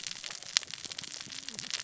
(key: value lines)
label: biophony, cascading saw
recorder: SoundTrap 600 or HydroMoth